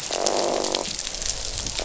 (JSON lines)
{"label": "biophony, croak", "recorder": "SoundTrap 500"}